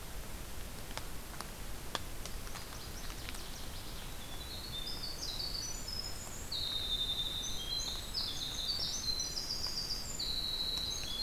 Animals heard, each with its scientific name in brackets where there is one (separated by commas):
Winter Wren (Troglodytes hiemalis), Northern Waterthrush (Parkesia noveboracensis)